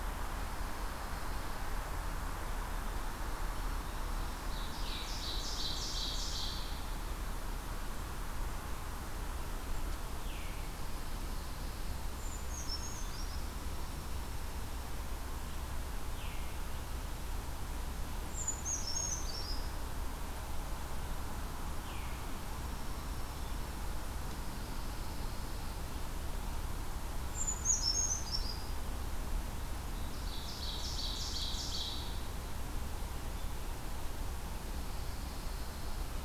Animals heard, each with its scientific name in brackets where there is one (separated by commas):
Dark-eyed Junco (Junco hyemalis), Pine Warbler (Setophaga pinus), Veery (Catharus fuscescens), Brown Creeper (Certhia americana), Ovenbird (Seiurus aurocapilla)